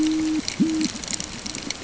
{"label": "ambient", "recorder": "HydroMoth"}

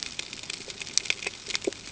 {"label": "ambient", "recorder": "HydroMoth"}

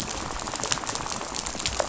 {"label": "biophony, rattle", "recorder": "SoundTrap 500"}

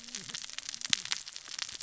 {"label": "biophony, cascading saw", "recorder": "SoundTrap 600 or HydroMoth"}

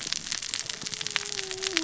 {"label": "biophony, cascading saw", "recorder": "SoundTrap 600 or HydroMoth"}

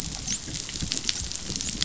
{"label": "biophony, dolphin", "recorder": "SoundTrap 500"}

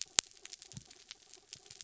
{"label": "anthrophony, mechanical", "recorder": "SoundTrap 300"}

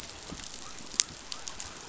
{"label": "biophony", "recorder": "SoundTrap 500"}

